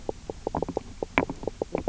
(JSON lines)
{"label": "biophony, knock croak", "recorder": "SoundTrap 300"}